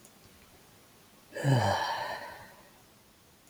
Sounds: Sigh